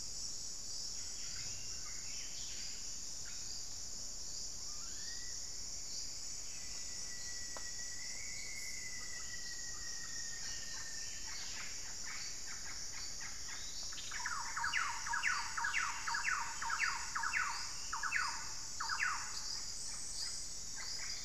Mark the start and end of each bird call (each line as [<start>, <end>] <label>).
[1.00, 3.00] Buff-breasted Wren (Cantorchilus leucotis)
[4.50, 5.50] Black-faced Cotinga (Conioptilon mcilhennyi)
[6.50, 11.20] Rufous-fronted Antthrush (Formicarius rufifrons)
[10.10, 14.10] Yellow-rumped Cacique (Cacicus cela)
[14.00, 19.50] Thrush-like Wren (Campylorhynchus turdinus)
[19.00, 21.24] Yellow-rumped Cacique (Cacicus cela)